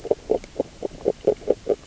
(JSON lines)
{"label": "biophony, grazing", "recorder": "SoundTrap 600 or HydroMoth"}